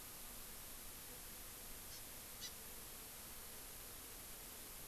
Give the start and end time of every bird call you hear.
[1.91, 2.01] Hawaii Amakihi (Chlorodrepanis virens)
[2.41, 2.51] Hawaii Amakihi (Chlorodrepanis virens)

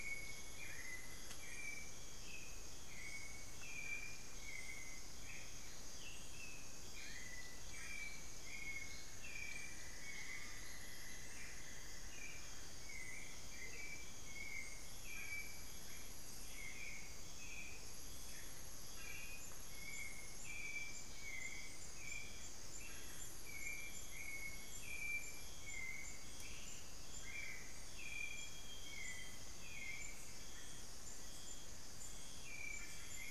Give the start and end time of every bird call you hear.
[0.00, 33.31] Hauxwell's Thrush (Turdus hauxwelli)
[5.88, 6.78] Ringed Antpipit (Corythopis torquatus)
[8.78, 12.88] Cinnamon-throated Woodcreeper (Dendrexetastes rufigula)
[17.58, 18.08] Amazonian Motmot (Momotus momota)
[27.78, 29.98] Amazonian Grosbeak (Cyanoloxia rothschildii)

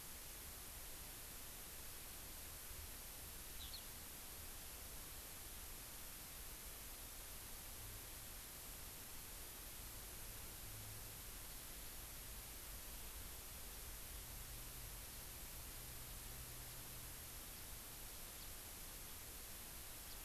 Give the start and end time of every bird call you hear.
[3.60, 3.80] Eurasian Skylark (Alauda arvensis)

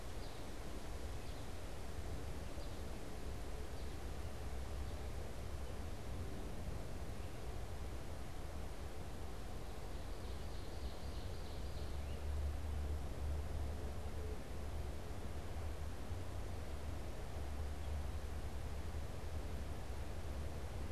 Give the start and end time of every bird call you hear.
[0.00, 4.10] American Goldfinch (Spinus tristis)
[9.80, 12.20] Ovenbird (Seiurus aurocapilla)

